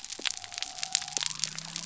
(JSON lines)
{"label": "biophony", "recorder": "SoundTrap 300"}